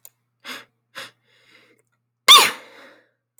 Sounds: Sneeze